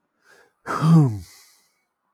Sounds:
Sigh